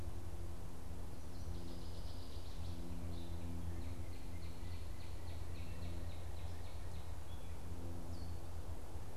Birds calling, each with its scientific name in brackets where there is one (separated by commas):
Gray Catbird (Dumetella carolinensis), Northern Waterthrush (Parkesia noveboracensis), Northern Cardinal (Cardinalis cardinalis)